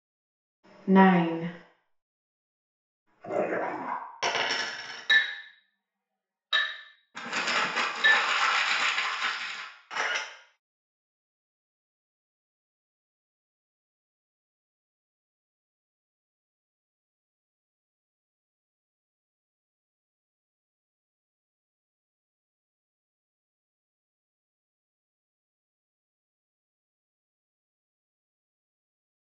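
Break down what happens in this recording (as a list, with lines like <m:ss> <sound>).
0:01 someone says "Nine."
0:03 a dog can be heard
0:04 a coin drops
0:05 the sound of glass
0:07 there is crumpling
0:10 a camera is audible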